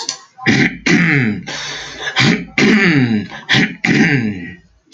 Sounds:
Throat clearing